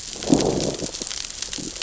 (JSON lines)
{"label": "biophony, growl", "recorder": "SoundTrap 600 or HydroMoth"}